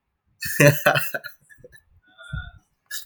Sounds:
Laughter